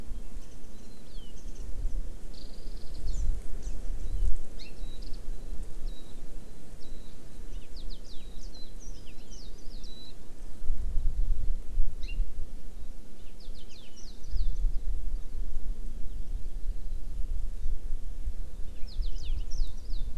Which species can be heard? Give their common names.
Warbling White-eye, Hawaii Amakihi, House Finch